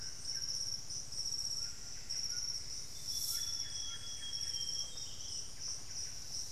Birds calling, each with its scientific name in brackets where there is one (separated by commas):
White-throated Toucan (Ramphastos tucanus), unidentified bird, Amazonian Grosbeak (Cyanoloxia rothschildii), Buff-breasted Wren (Cantorchilus leucotis)